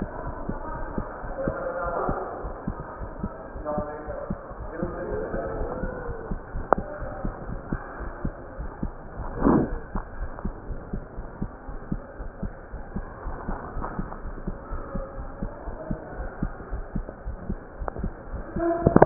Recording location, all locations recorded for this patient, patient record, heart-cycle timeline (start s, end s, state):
aortic valve (AV)
aortic valve (AV)+pulmonary valve (PV)+tricuspid valve (TV)+mitral valve (MV)
#Age: Child
#Sex: Male
#Height: 142.0 cm
#Weight: 37.1 kg
#Pregnancy status: False
#Murmur: Absent
#Murmur locations: nan
#Most audible location: nan
#Systolic murmur timing: nan
#Systolic murmur shape: nan
#Systolic murmur grading: nan
#Systolic murmur pitch: nan
#Systolic murmur quality: nan
#Diastolic murmur timing: nan
#Diastolic murmur shape: nan
#Diastolic murmur grading: nan
#Diastolic murmur pitch: nan
#Diastolic murmur quality: nan
#Outcome: Normal
#Campaign: 2015 screening campaign
0.00	10.12	unannotated
10.12	10.28	S1
10.28	10.42	systole
10.42	10.56	S2
10.56	10.68	diastole
10.68	10.79	S1
10.79	10.91	systole
10.91	11.01	S2
11.01	11.16	diastole
11.16	11.26	S1
11.26	11.40	systole
11.40	11.51	S2
11.51	11.66	diastole
11.66	11.80	S1
11.80	11.90	systole
11.90	12.02	S2
12.02	12.18	diastole
12.18	12.32	S1
12.32	12.42	systole
12.42	12.53	S2
12.53	12.71	diastole
12.71	12.84	S1
12.84	12.92	systole
12.92	13.06	S2
13.06	13.23	diastole
13.23	13.38	S1
13.38	13.46	systole
13.46	13.58	S2
13.58	13.74	diastole
13.74	13.88	S1
13.88	13.97	systole
13.97	14.09	S2
14.09	14.24	diastole
14.24	14.34	S1
14.34	14.44	systole
14.44	14.56	S2
14.56	14.70	diastole
14.70	14.82	S1
14.82	14.92	systole
14.92	15.04	S2
15.04	15.18	diastole
15.18	15.30	S1
15.30	15.40	systole
15.40	15.52	S2
15.52	15.66	diastole
15.66	15.78	S1
15.78	15.88	systole
15.88	15.98	S2
15.98	16.18	diastole
16.18	16.32	S1
16.32	16.40	systole
16.40	16.52	S2
16.52	16.70	diastole
16.70	16.86	S1
16.86	16.95	systole
16.95	17.05	S2
17.05	17.26	diastole
17.26	17.38	S1
17.38	17.48	systole
17.48	17.60	S2
17.60	17.72	diastole
17.72	19.06	unannotated